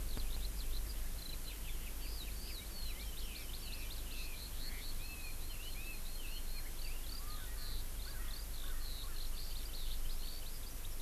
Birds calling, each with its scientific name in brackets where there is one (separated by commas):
Eurasian Skylark (Alauda arvensis), Hawaii Amakihi (Chlorodrepanis virens), Erckel's Francolin (Pternistis erckelii), Red-billed Leiothrix (Leiothrix lutea)